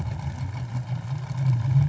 {"label": "anthrophony, boat engine", "recorder": "SoundTrap 500"}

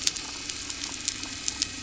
{"label": "anthrophony, boat engine", "recorder": "SoundTrap 300"}
{"label": "biophony", "recorder": "SoundTrap 300"}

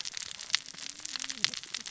{"label": "biophony, cascading saw", "recorder": "SoundTrap 600 or HydroMoth"}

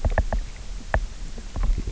{"label": "biophony, knock", "recorder": "SoundTrap 300"}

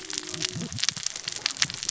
{"label": "biophony, cascading saw", "recorder": "SoundTrap 600 or HydroMoth"}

